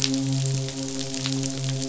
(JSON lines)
{"label": "biophony, midshipman", "recorder": "SoundTrap 500"}